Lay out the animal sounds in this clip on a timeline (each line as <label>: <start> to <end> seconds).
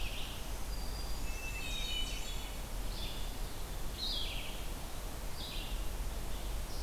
Black-throated Green Warbler (Setophaga virens): 0.0 to 1.5 seconds
Red-eyed Vireo (Vireo olivaceus): 0.0 to 6.8 seconds
Blackburnian Warbler (Setophaga fusca): 1.0 to 2.5 seconds
Hermit Thrush (Catharus guttatus): 1.0 to 2.8 seconds